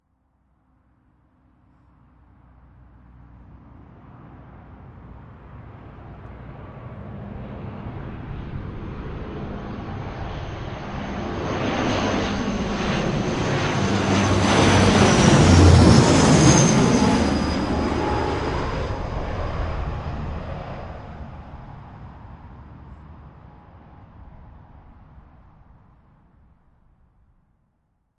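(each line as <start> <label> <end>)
0.0 A low-flying propeller aircraft passes overhead producing a loud engine sound. 28.2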